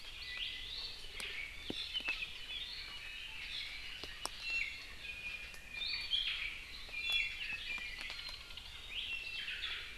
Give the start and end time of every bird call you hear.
[4.42, 6.32] Iiwi (Drepanis coccinea)
[6.92, 7.62] Iiwi (Drepanis coccinea)
[8.02, 8.72] Iiwi (Drepanis coccinea)
[9.32, 9.92] Omao (Myadestes obscurus)

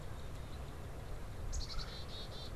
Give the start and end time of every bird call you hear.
[1.40, 2.50] Black-capped Chickadee (Poecile atricapillus)
[1.60, 2.10] Red-bellied Woodpecker (Melanerpes carolinus)

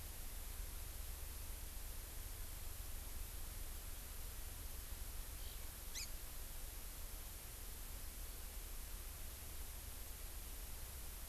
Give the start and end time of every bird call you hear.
[5.42, 5.51] Eurasian Skylark (Alauda arvensis)
[5.92, 6.12] Hawaii Amakihi (Chlorodrepanis virens)

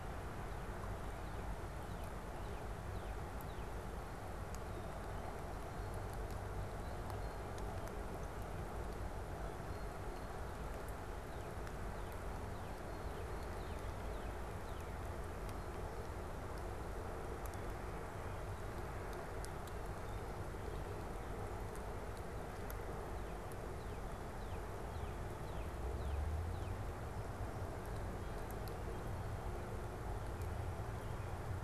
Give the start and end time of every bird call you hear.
[0.32, 4.02] Northern Cardinal (Cardinalis cardinalis)
[6.62, 7.62] Blue Jay (Cyanocitta cristata)
[9.62, 10.32] Blue Jay (Cyanocitta cristata)
[11.12, 15.02] Northern Cardinal (Cardinalis cardinalis)
[12.62, 13.62] Blue Jay (Cyanocitta cristata)
[23.02, 26.82] Northern Cardinal (Cardinalis cardinalis)

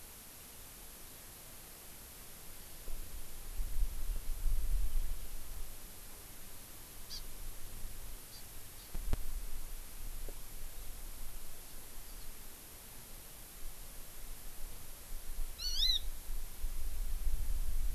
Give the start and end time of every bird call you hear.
[7.09, 7.19] Hawaii Amakihi (Chlorodrepanis virens)
[8.29, 8.39] Hawaii Amakihi (Chlorodrepanis virens)
[8.79, 8.89] Hawaii Amakihi (Chlorodrepanis virens)
[15.49, 15.99] Hawaii Amakihi (Chlorodrepanis virens)

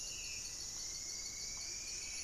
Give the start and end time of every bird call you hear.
[0.00, 0.65] Black-spotted Bare-eye (Phlegopsis nigromaculata)
[0.00, 2.24] Buff-breasted Wren (Cantorchilus leucotis)
[0.00, 2.24] Spot-winged Antshrike (Pygiptila stellaris)
[0.55, 2.24] Striped Woodcreeper (Xiphorhynchus obsoletus)
[0.75, 2.24] Horned Screamer (Anhima cornuta)

